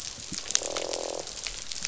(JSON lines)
{"label": "biophony, croak", "recorder": "SoundTrap 500"}